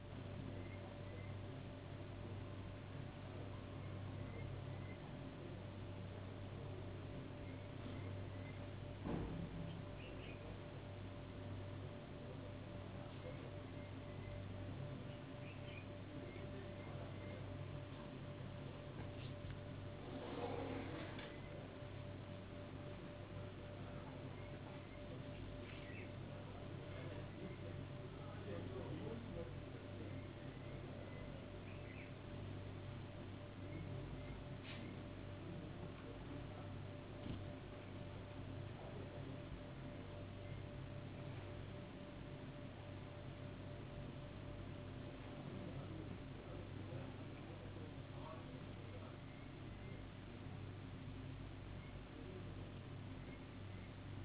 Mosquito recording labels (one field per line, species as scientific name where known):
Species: no mosquito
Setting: insect culture